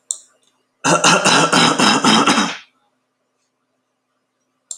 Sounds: Cough